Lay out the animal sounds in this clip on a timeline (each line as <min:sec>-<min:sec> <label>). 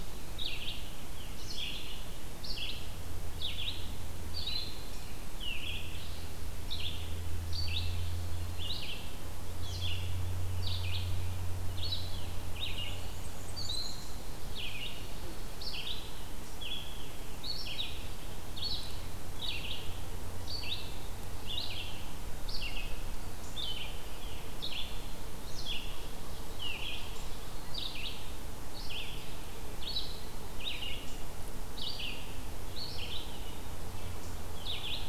0:00.0-0:00.5 Eastern Wood-Pewee (Contopus virens)
0:00.0-0:02.7 Red-eyed Vireo (Vireo olivaceus)
0:03.3-0:35.1 Red-eyed Vireo (Vireo olivaceus)
0:12.5-0:14.1 Black-and-white Warbler (Mniotilta varia)